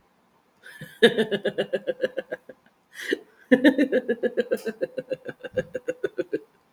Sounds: Laughter